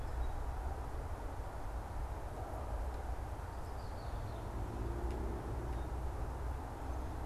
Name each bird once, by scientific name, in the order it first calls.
Agelaius phoeniceus